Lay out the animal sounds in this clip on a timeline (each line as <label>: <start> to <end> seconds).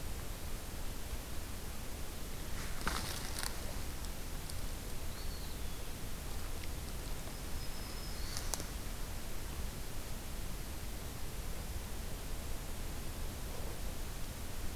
Eastern Wood-Pewee (Contopus virens): 5.0 to 6.0 seconds
Black-throated Green Warbler (Setophaga virens): 7.2 to 8.7 seconds